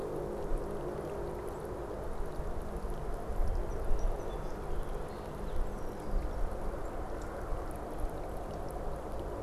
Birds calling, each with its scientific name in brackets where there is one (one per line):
Song Sparrow (Melospiza melodia)